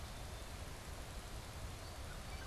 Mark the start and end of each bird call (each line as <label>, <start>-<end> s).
Black-capped Chickadee (Poecile atricapillus), 0.0-2.5 s